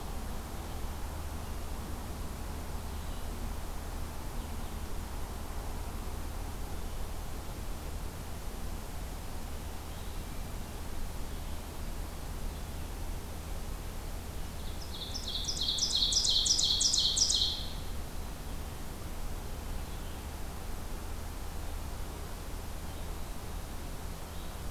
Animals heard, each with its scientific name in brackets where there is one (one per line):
Ovenbird (Seiurus aurocapilla)
Hermit Thrush (Catharus guttatus)